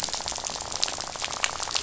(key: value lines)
label: biophony, rattle
recorder: SoundTrap 500